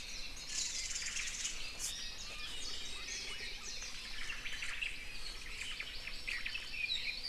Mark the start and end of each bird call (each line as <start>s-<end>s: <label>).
0.4s-1.6s: Red-billed Leiothrix (Leiothrix lutea)
0.8s-1.5s: Omao (Myadestes obscurus)
1.8s-2.3s: Iiwi (Drepanis coccinea)
4.1s-5.0s: Omao (Myadestes obscurus)
5.4s-6.0s: Omao (Myadestes obscurus)
5.4s-7.3s: Hawaii Amakihi (Chlorodrepanis virens)
6.3s-6.7s: Omao (Myadestes obscurus)
6.7s-7.3s: Red-billed Leiothrix (Leiothrix lutea)
6.8s-7.1s: Apapane (Himatione sanguinea)